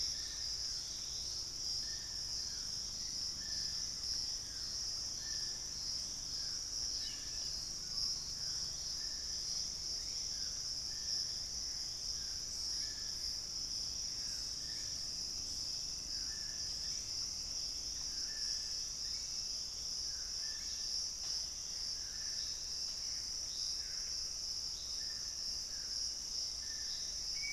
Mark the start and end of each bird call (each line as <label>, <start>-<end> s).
unidentified bird, 0.0-20.9 s
Dusky-throated Antshrike (Thamnomanes ardesiacus), 0.0-27.5 s
Black-faced Antthrush (Formicarius analis), 3.7-5.2 s
Hauxwell's Thrush (Turdus hauxwelli), 6.7-7.5 s
Mealy Parrot (Amazona farinosa), 7.9-9.1 s
White-bellied Tody-Tyrant (Hemitriccus griseipectus), 12.4-19.6 s
Gray Antbird (Cercomacra cinerascens), 21.9-24.3 s